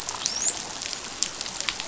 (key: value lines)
label: biophony, dolphin
recorder: SoundTrap 500